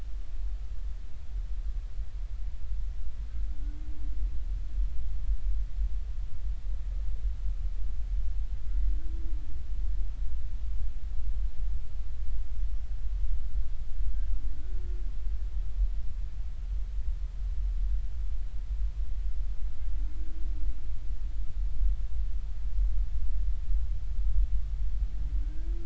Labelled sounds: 14.5	14.8	humpback whale, 1.4 to 1.5 kHz
25.4	25.7	humpback whale, 1.4 to 1.7 kHz

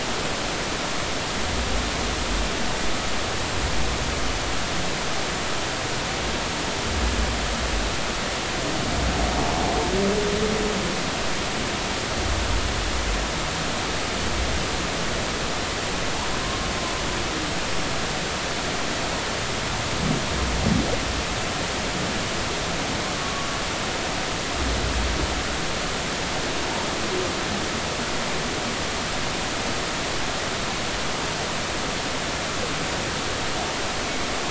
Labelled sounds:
23.2	23.5	humpback whale, 1.1 to 1.2 kHz

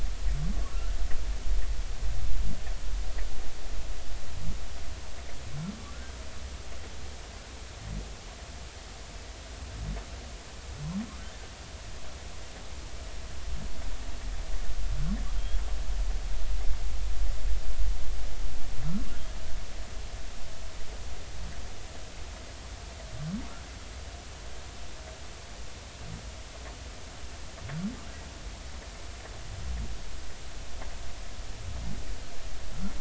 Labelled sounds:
0.7	1.0	humpback whale, 1.3 to 1.5 kHz
5.9	6.2	humpback whale, 1.3 to 1.6 kHz

